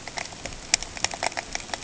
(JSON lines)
{"label": "ambient", "recorder": "HydroMoth"}